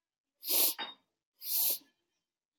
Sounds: Sniff